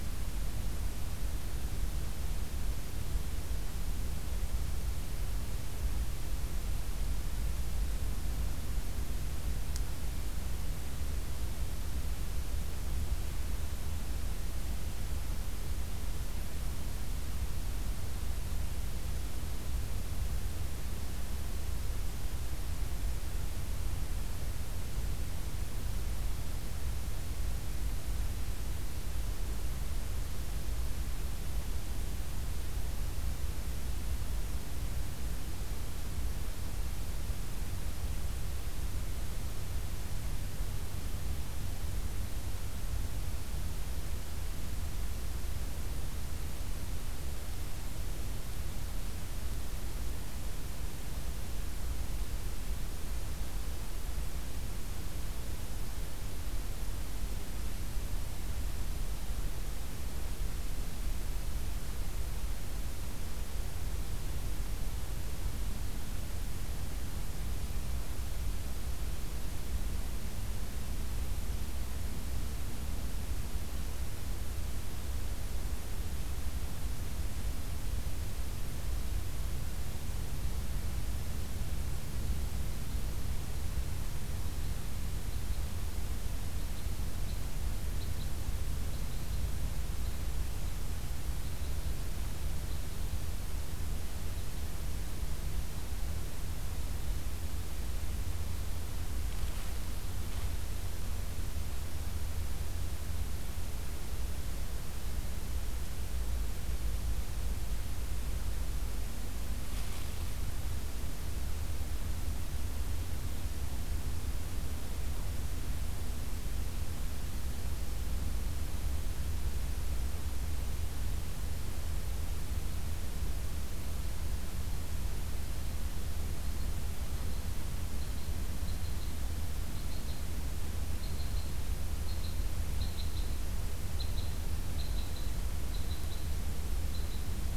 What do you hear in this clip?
Red Crossbill